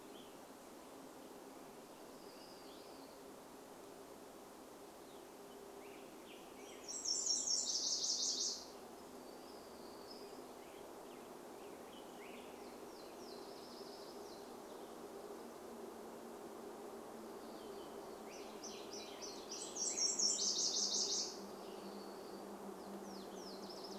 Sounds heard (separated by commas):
Nashville Warbler song, Black-headed Grosbeak song, warbler song, unidentified sound